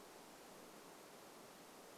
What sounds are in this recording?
forest ambience